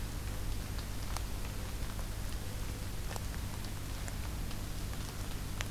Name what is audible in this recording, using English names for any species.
Mourning Dove